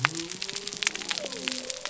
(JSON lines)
{"label": "biophony", "recorder": "SoundTrap 300"}